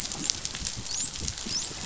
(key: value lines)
label: biophony, dolphin
recorder: SoundTrap 500